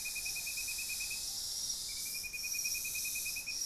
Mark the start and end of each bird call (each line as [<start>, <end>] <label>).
[0.00, 3.66] Golden-crowned Spadebill (Platyrinchus coronatus)
[0.00, 3.66] Ruddy Pigeon (Patagioenas subvinacea)